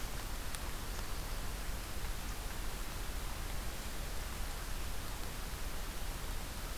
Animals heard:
forest ambience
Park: Acadia National Park